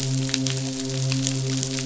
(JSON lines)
{"label": "biophony, midshipman", "recorder": "SoundTrap 500"}